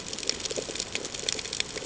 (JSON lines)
{"label": "ambient", "recorder": "HydroMoth"}